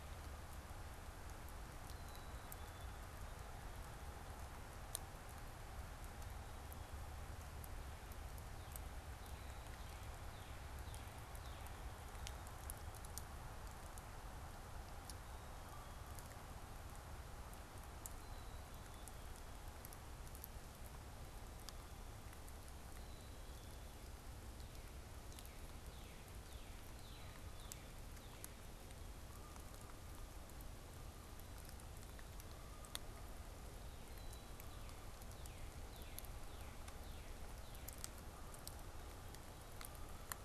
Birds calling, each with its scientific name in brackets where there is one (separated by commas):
Northern Cardinal (Cardinalis cardinalis), Black-capped Chickadee (Poecile atricapillus), unidentified bird, Canada Goose (Branta canadensis)